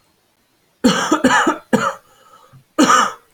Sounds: Cough